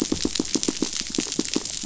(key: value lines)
label: biophony, pulse
recorder: SoundTrap 500